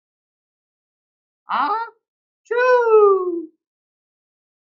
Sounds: Sneeze